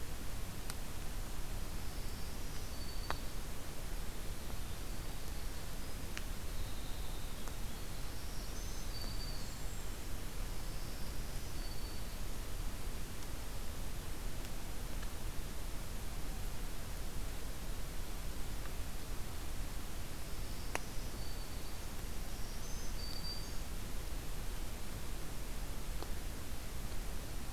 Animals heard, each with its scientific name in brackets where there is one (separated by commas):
Golden-crowned Kinglet (Regulus satrapa), Winter Wren (Troglodytes hiemalis), Black-throated Green Warbler (Setophaga virens)